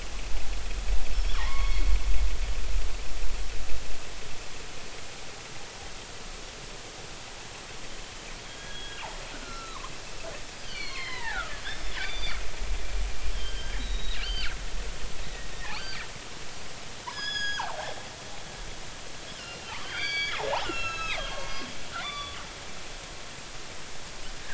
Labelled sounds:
1.1	1.9	killer whale, northern resident, G clan, 0.80 to 5.5 kHz
8.5	9.0	killer whale, northern resident, G clan, 1.5 to 3.4 kHz
9.4	9.9	killer whale, northern resident, G clan, 0.96 to 4.2 kHz
10.6	12.4	killer whale, northern resident, G clan, 0.80 to 6.1 kHz
13.3	16.0	killer whale, northern resident, G clan, 1.1 to 4.7 kHz
17.1	17.9	killer whale, northern resident, G clan, 0.80 to 6.8 kHz
19.4	21.7	killer whale, northern resident, G clan, 1.0 to 6.9 kHz
22.0	22.4	killer whale, northern resident, G clan, 1.0 to 4.7 kHz

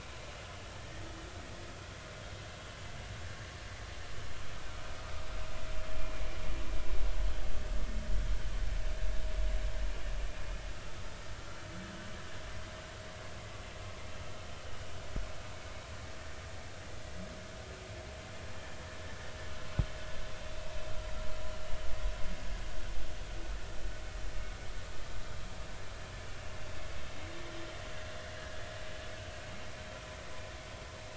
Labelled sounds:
28.4	28.6	vessel noise, 1.6 to 1.7 kHz

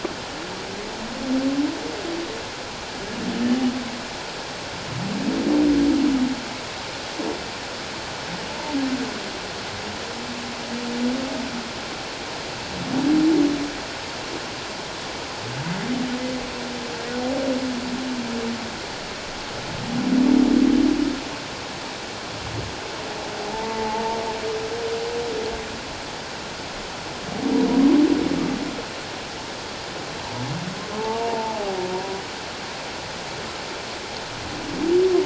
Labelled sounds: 23.5	24.2	humpback whale, 0.78 to 0.97 kHz
31.0	31.6	humpback whale, 0.81 to 0.97 kHz
31.9	32.2	humpback whale, 0.91 to 1.0 kHz

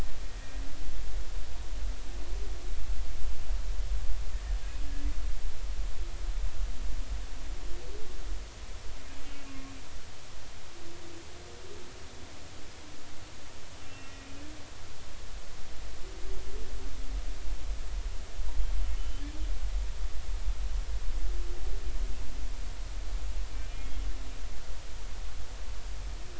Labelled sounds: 0.2	0.5	humpback whale, 1.8 to 1.9 kHz
9.2	9.7	humpback whale, 1.1 to 2.8 kHz
13.8	14.4	humpback whale, 1.9 to 2.8 kHz
18.9	19.2	humpback whale, 2.9 to 3.2 kHz
23.5	24.0	humpback whale, 2.3 to 3.3 kHz

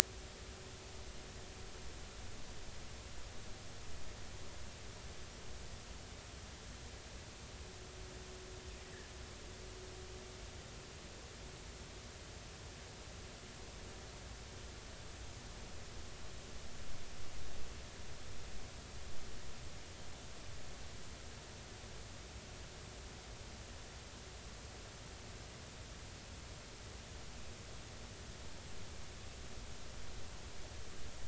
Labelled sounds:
8.8	9.1	fish, 1.6 to 2.0 kHz

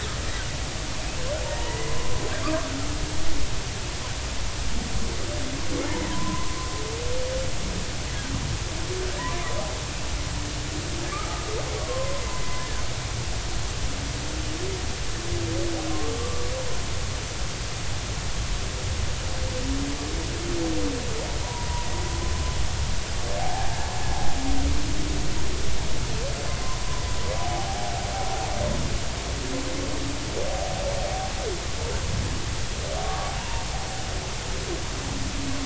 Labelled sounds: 0.3	2.2	humpback whale, 0.80 to 2.1 kHz
5.8	6.6	humpback whale, 0.90 to 2.2 kHz
11.8	12.8	humpback whale, 0.96 to 2.0 kHz
15.9	16.1	humpback whale, 1.0 to 1.2 kHz
21.4	21.9	humpback whale, 0.90 to 1.0 kHz
23.4	23.8	humpback whale, 0.80 to 0.93 kHz
26.8	27.9	humpback whale, 0.80 to 1.1 kHz
33.0	33.6	humpback whale, 0.86 to 1.2 kHz

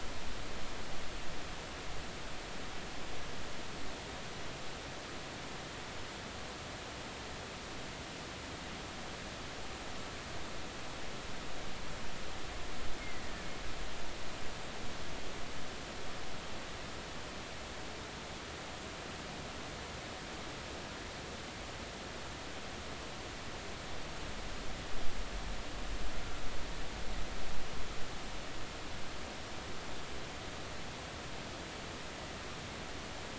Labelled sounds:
13.0	13.2	killer whale, Bigg's (transient), 1.9 to 2.2 kHz

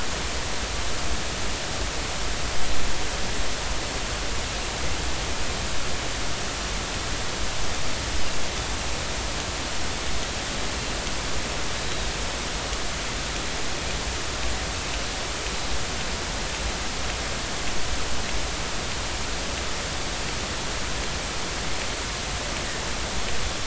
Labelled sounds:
11.8	12.1	Pacific white-sided dolphin, 3.7 to 4.0 kHz

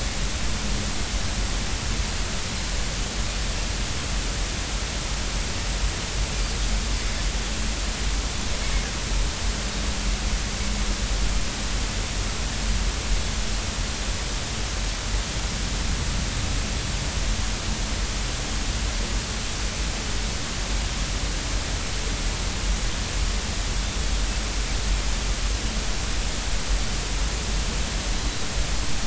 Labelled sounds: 28.1	28.5	Pacific white-sided dolphin, 3.8 to 4.0 kHz

